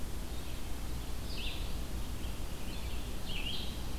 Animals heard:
Red-eyed Vireo (Vireo olivaceus)

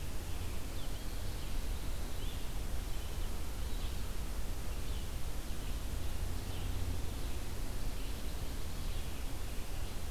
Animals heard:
Red-eyed Vireo (Vireo olivaceus), Pine Warbler (Setophaga pinus)

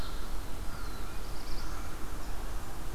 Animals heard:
unknown mammal, Black-throated Blue Warbler (Setophaga caerulescens)

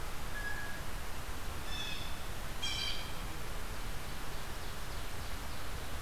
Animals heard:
Blue Jay (Cyanocitta cristata), Ovenbird (Seiurus aurocapilla)

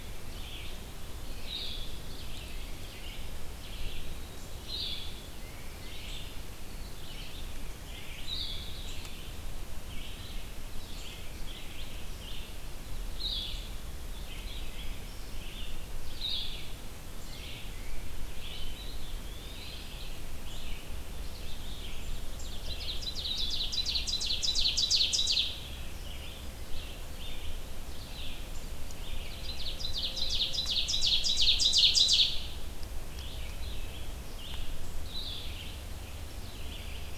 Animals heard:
Blackburnian Warbler (Setophaga fusca), Blue-headed Vireo (Vireo solitarius), Tufted Titmouse (Baeolophus bicolor), Eastern Wood-Pewee (Contopus virens), Ovenbird (Seiurus aurocapilla), Red-eyed Vireo (Vireo olivaceus)

